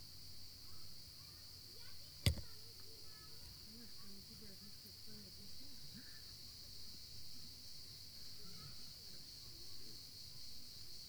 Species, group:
Poecilimon ornatus, Orthoptera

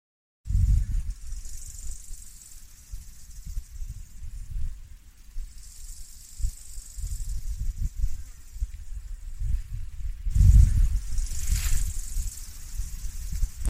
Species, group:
Chorthippus biguttulus, Orthoptera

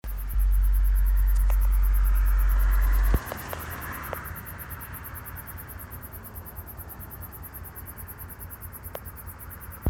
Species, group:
Neoconocephalus ensiger, Orthoptera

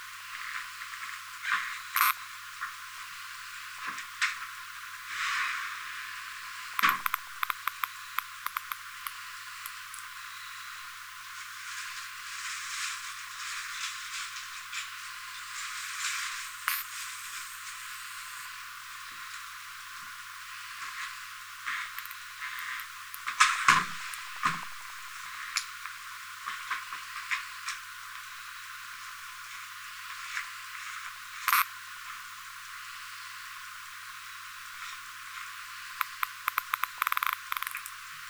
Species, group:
Isophya modesta, Orthoptera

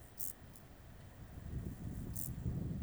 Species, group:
Chorthippus brunneus, Orthoptera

